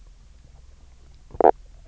{"label": "biophony, stridulation", "recorder": "SoundTrap 300"}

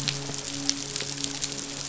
{"label": "biophony, midshipman", "recorder": "SoundTrap 500"}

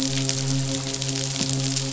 {"label": "biophony, midshipman", "recorder": "SoundTrap 500"}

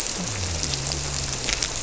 {"label": "biophony", "recorder": "SoundTrap 300"}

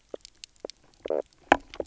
{"label": "biophony, knock croak", "recorder": "SoundTrap 300"}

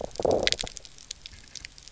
{"label": "biophony, low growl", "recorder": "SoundTrap 300"}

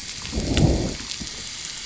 {"label": "biophony, growl", "recorder": "SoundTrap 500"}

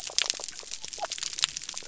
{"label": "biophony", "recorder": "SoundTrap 300"}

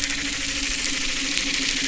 {"label": "anthrophony, boat engine", "recorder": "SoundTrap 300"}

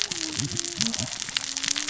{"label": "biophony, cascading saw", "recorder": "SoundTrap 600 or HydroMoth"}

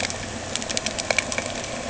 {"label": "anthrophony, boat engine", "recorder": "HydroMoth"}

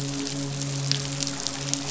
{"label": "biophony, midshipman", "recorder": "SoundTrap 500"}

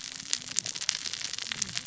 {"label": "biophony, cascading saw", "recorder": "SoundTrap 600 or HydroMoth"}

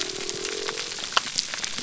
{"label": "biophony", "recorder": "SoundTrap 300"}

